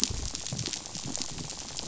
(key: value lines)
label: biophony, rattle
recorder: SoundTrap 500